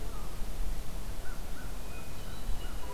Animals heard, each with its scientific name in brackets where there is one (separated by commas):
American Crow (Corvus brachyrhynchos), Hermit Thrush (Catharus guttatus)